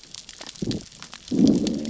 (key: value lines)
label: biophony, growl
recorder: SoundTrap 600 or HydroMoth